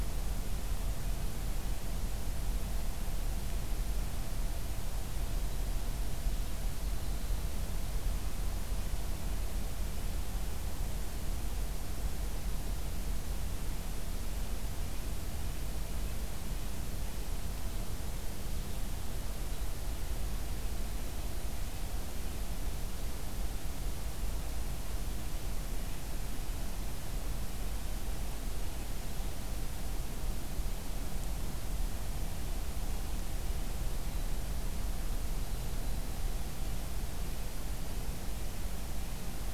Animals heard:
forest ambience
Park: Acadia National Park